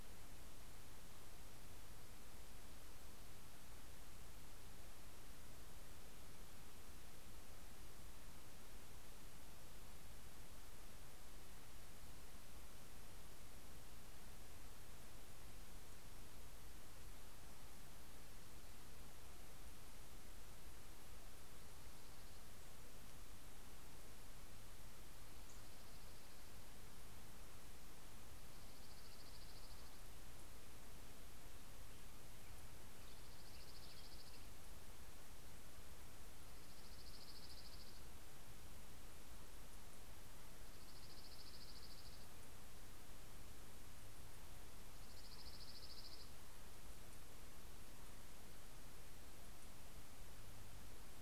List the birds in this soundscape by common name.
Dark-eyed Junco